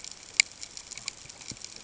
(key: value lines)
label: ambient
recorder: HydroMoth